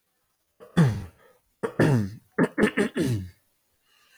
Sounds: Throat clearing